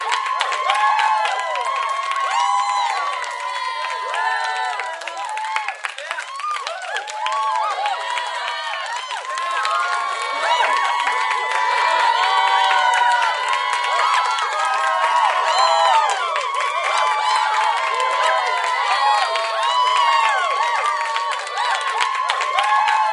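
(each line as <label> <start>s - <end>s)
A crowd cheering with applause, rhythmic clapping, and excited shouting. 0.0s - 23.1s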